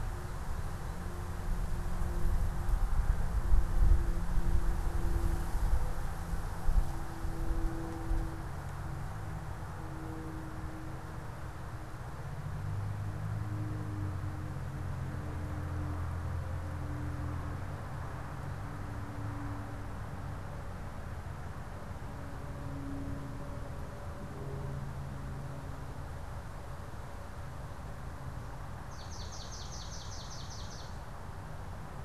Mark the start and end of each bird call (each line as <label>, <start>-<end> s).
Swamp Sparrow (Melospiza georgiana), 28.8-30.9 s